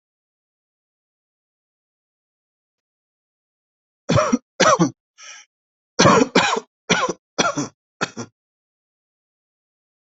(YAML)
expert_labels:
- quality: ok
  cough_type: dry
  dyspnea: false
  wheezing: false
  stridor: false
  choking: false
  congestion: false
  nothing: true
  diagnosis: COVID-19
  severity: mild
age: 26
gender: male
respiratory_condition: false
fever_muscle_pain: false
status: symptomatic